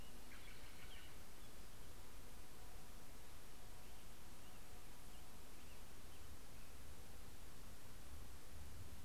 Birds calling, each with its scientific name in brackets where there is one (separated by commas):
American Robin (Turdus migratorius), Steller's Jay (Cyanocitta stelleri)